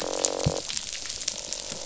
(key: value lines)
label: biophony, croak
recorder: SoundTrap 500